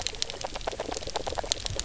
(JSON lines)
{"label": "biophony, knock croak", "recorder": "SoundTrap 300"}